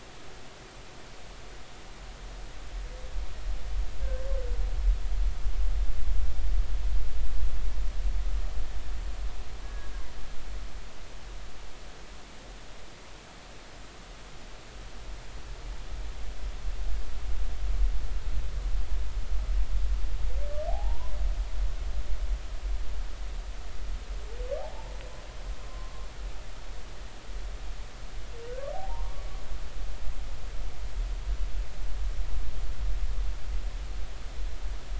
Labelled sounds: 9.6	9.9	humpback whale, 1.6 to 1.7 kHz
20.7	21.1	humpback whale, 0.80 to 1.1 kHz
24.6	26.1	humpback whale, 0.80 to 1.2 kHz
28.7	29.2	humpback whale, 0.80 to 1.2 kHz

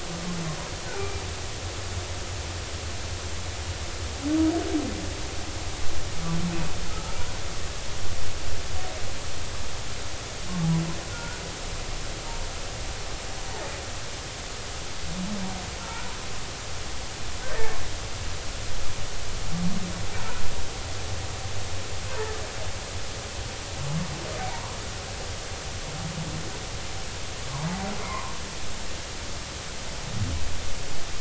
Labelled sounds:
1.9	2.2	humpback whale, 2.3 to 2.4 kHz
7.0	7.3	humpback whale, 0.86 to 1.0 kHz
11.1	11.4	humpback whale, 1.3 to 1.5 kHz
15.8	16.1	humpback whale, 1.3 to 1.5 kHz
17.5	17.8	humpback whale, 1.7 to 2.0 kHz
22.1	22.3	humpback whale, 0.83 to 1.1 kHz
24.4	24.8	humpback whale, 0.80 to 1.2 kHz
28.0	28.3	humpback whale, 0.90 to 1.2 kHz

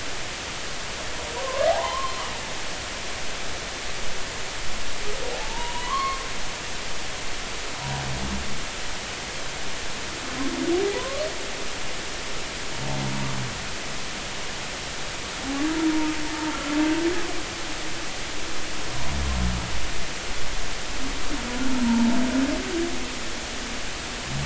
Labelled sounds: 1.4	2.2	humpback whale, 0.80 to 1.2 kHz
5.4	6.2	humpback whale, 0.80 to 3.0 kHz
10.9	11.3	humpback whale, 0.93 to 1.2 kHz
21.8	22.1	humpback whale, 0.83 to 0.99 kHz

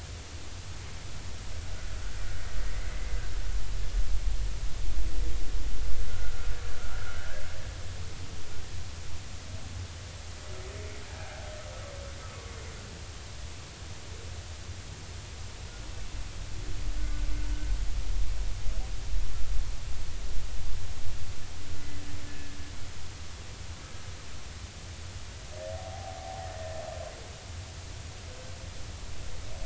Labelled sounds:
6.1	6.5	humpback whale, 1.3 to 1.6 kHz
17.0	17.3	humpback whale, 1.4 to 1.6 kHz
22.3	22.6	humpback whale, 1.6 to 1.8 kHz
25.8	26.8	humpback whale, 0.80 to 1.9 kHz

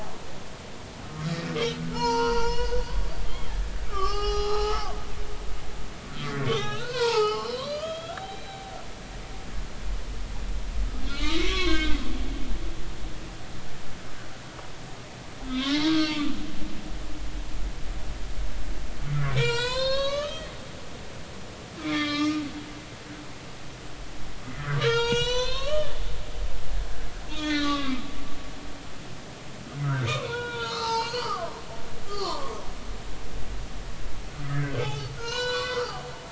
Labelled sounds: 1.7	3.0	humpback whale, 0.83 to 6.3 kHz
3.3	3.5	humpback whale, 3.1 to 3.4 kHz
3.9	5.5	humpback whale, 0.80 to 5.9 kHz
6.2	8.8	humpback whale, 0.80 to 5.6 kHz
11.0	12.0	humpback whale, 0.99 to 3.8 kHz
15.5	16.3	humpback whale, 1.1 to 3.9 kHz
19.1	20.5	humpback whale, 0.90 to 8.0 kHz
21.8	22.4	humpback whale, 1.1 to 5.6 kHz
24.8	25.9	humpback whale, 0.86 to 7.8 kHz
27.3	28.0	humpback whale, 0.99 to 4.3 kHz
29.8	31.5	humpback whale, 0.83 to 6.7 kHz
32.1	32.6	humpback whale, 0.86 to 4.6 kHz
34.5	36.0	humpback whale, 0.80 to 7.1 kHz

